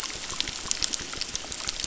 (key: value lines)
label: biophony, crackle
recorder: SoundTrap 600